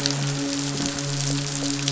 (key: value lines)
label: biophony, midshipman
recorder: SoundTrap 500